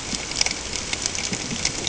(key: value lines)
label: ambient
recorder: HydroMoth